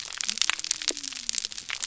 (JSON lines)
{"label": "biophony", "recorder": "SoundTrap 300"}